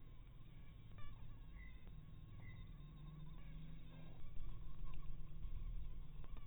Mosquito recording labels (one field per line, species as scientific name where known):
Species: mosquito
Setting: cup